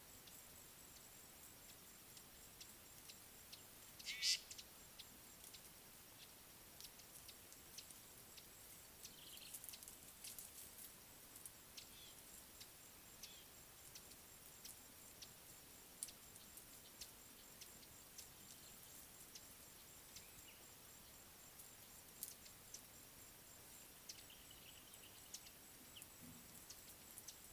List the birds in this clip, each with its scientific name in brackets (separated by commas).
Lesser Masked-Weaver (Ploceus intermedius), Brown-tailed Chat (Oenanthe scotocerca), Fork-tailed Drongo (Dicrurus adsimilis)